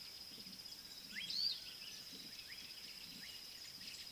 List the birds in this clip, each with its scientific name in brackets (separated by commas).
Pale White-eye (Zosterops flavilateralis)